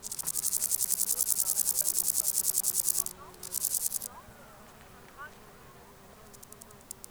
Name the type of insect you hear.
orthopteran